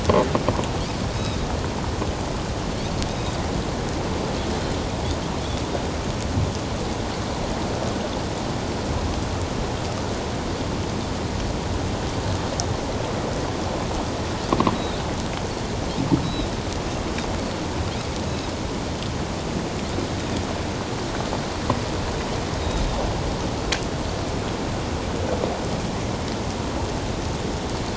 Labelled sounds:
3.1	3.3	Pacific white-sided dolphin, 3.6 to 3.8 kHz
14.7	15.0	Pacific white-sided dolphin, 3.6 to 4.0 kHz
16.2	16.5	Pacific white-sided dolphin, 3.6 to 4.0 kHz

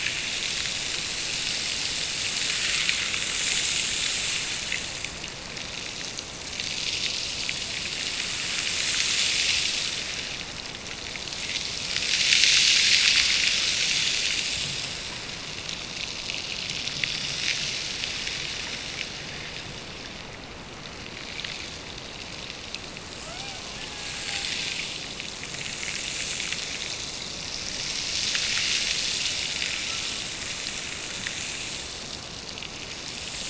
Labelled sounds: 23.2	24.6	killer whale, Bigg's (transient), Gulf of Alaska transient, 0.39 to 2.5 kHz

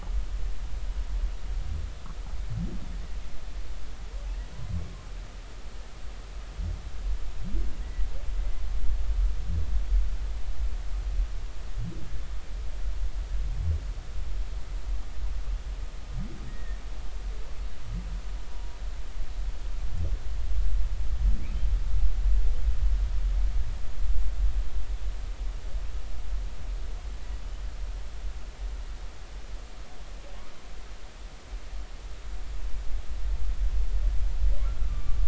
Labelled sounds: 7.8	8.1	humpback whale, 1.8 to 2.1 kHz
8.4	8.6	humpback whale, 2.0 to 2.1 kHz
16.5	16.8	humpback whale, 1.7 to 2.0 kHz
34.9	35.2	humpback whale, 1.1 to 1.2 kHz

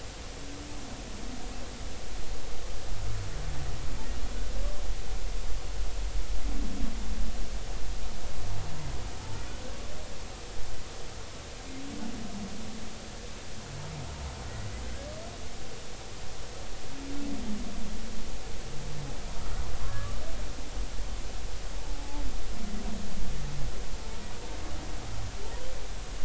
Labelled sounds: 19.9	20.2	humpback whale, 1.1 to 1.3 kHz
21.8	22.2	humpback whale, 0.80 to 0.96 kHz

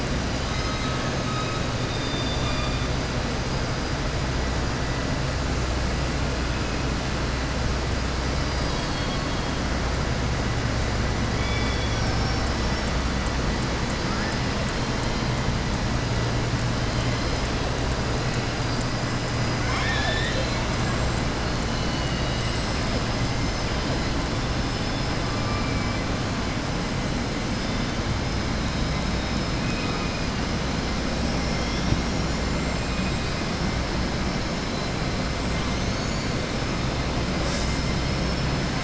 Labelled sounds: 0.3	1.0	killer whale, southern resident, 1.3 to 6.4 kHz
1.8	2.9	killer whale, southern resident, 3.5 to 4.9 kHz
19.4	21.3	killer whale, southern resident, 0.77 to 8.0 kHz
29.6	30.2	killer whale, southern resident, 2.2 to 2.8 kHz

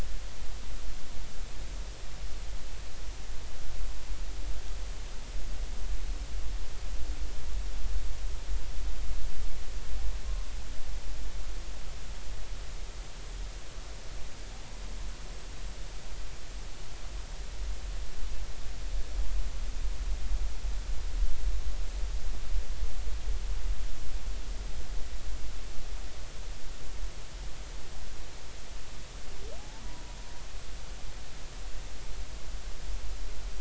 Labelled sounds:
29.6	30.0	humpback whale, 0.80 to 1.1 kHz

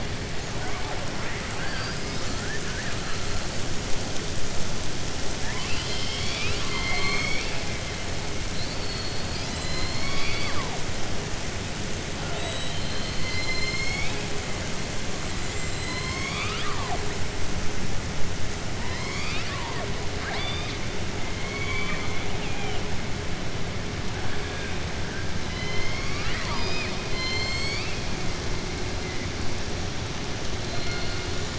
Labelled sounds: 1.1	2.0	killer whale, southern resident, 0.81 to 2.7 kHz
5.3	7.6	killer whale, southern resident, 0.86 to 6.6 kHz
8.5	10.8	killer whale, southern resident, 0.69 to 5.6 kHz
12.3	12.7	killer whale, southern resident, 7.5 to 7.9 kHz
15.7	17.0	killer whale, southern resident, 0.70 to 6.6 kHz
20.1	20.8	killer whale, southern resident, 0.69 to 5.0 kHz
21.3	22.8	killer whale, southern resident, 1.0 to 4.3 kHz

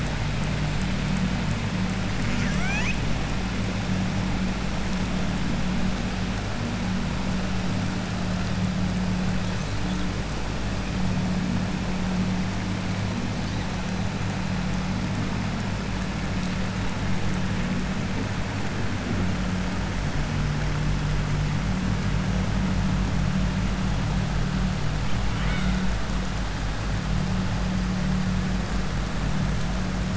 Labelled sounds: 2.2	3.0	killer whale, southern resident, 0.81 to 7.8 kHz
25.3	25.8	killer whale, southern resident, 1.0 to 4.2 kHz

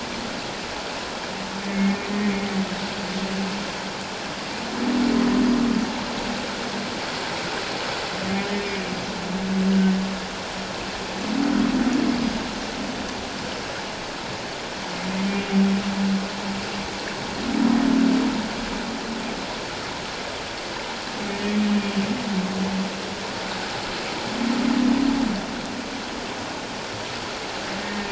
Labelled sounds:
1.7	2.0	humpback whale, 2.1 to 2.2 kHz
27.8	28.0	humpback whale, 1.8 to 1.9 kHz

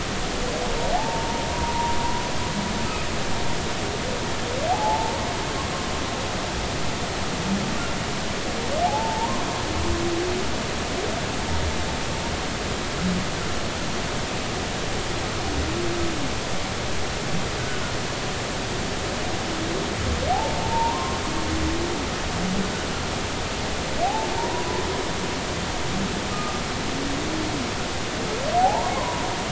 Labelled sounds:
0.9	2.0	humpback whale, 0.80 to 1.0 kHz
4.7	5.2	humpback whale, 0.80 to 0.96 kHz
8.8	9.5	humpback whale, 0.80 to 1.2 kHz
20.3	21.2	humpback whale, 0.80 to 1.1 kHz
24.0	24.8	humpback whale, 0.80 to 1.1 kHz
26.3	26.6	humpback whale, 1.2 to 1.3 kHz
28.6	29.2	humpback whale, 0.80 to 1.2 kHz

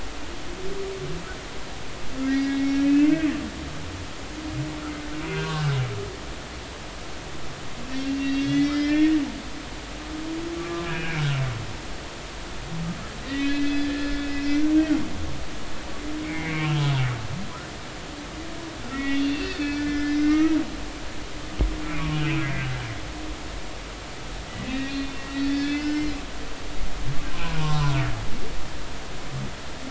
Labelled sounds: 2.3	3.3	humpback whale, 1.8 to 5.6 kHz
5.2	5.8	humpback whale, 1.4 to 2.6 kHz
8.0	9.2	humpback whale, 1.7 to 3.9 kHz
10.6	11.4	humpback whale, 1.1 to 2.7 kHz
13.2	14.2	humpback whale, 1.6 to 4.9 kHz
16.2	16.8	humpback whale, 1.0 to 2.8 kHz
18.9	20.6	humpback whale, 1.2 to 6.0 kHz
21.8	22.7	humpback whale, 1.0 to 2.8 kHz
24.6	26.0	humpback whale, 1.4 to 4.5 kHz
27.3	28.0	humpback whale, 0.86 to 1.1 kHz

